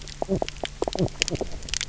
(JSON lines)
{"label": "biophony, knock croak", "recorder": "SoundTrap 300"}